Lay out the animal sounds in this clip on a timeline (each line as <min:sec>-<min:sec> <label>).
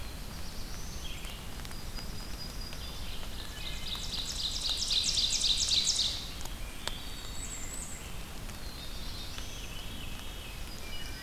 0:00.0-0:01.4 Black-throated Blue Warbler (Setophaga caerulescens)
0:00.0-0:03.4 Red-eyed Vireo (Vireo olivaceus)
0:01.5-0:03.1 Yellow-rumped Warbler (Setophaga coronata)
0:03.2-0:04.3 Wood Thrush (Hylocichla mustelina)
0:03.4-0:06.5 Ovenbird (Seiurus aurocapilla)
0:06.6-0:07.7 Wood Thrush (Hylocichla mustelina)
0:07.1-0:08.2 Bay-breasted Warbler (Setophaga castanea)
0:07.9-0:10.0 Black-throated Blue Warbler (Setophaga caerulescens)
0:09.1-0:10.9 Veery (Catharus fuscescens)
0:10.5-0:11.2 Yellow-rumped Warbler (Setophaga coronata)
0:10.7-0:11.2 Wood Thrush (Hylocichla mustelina)